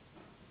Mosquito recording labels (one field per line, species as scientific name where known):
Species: Anopheles gambiae s.s.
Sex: female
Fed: unfed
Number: one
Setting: insect culture